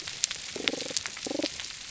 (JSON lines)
{"label": "biophony, damselfish", "recorder": "SoundTrap 300"}